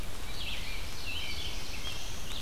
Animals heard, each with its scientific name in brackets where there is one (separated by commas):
Red-eyed Vireo (Vireo olivaceus), American Robin (Turdus migratorius), Black-throated Blue Warbler (Setophaga caerulescens)